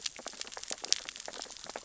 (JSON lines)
{"label": "biophony, sea urchins (Echinidae)", "recorder": "SoundTrap 600 or HydroMoth"}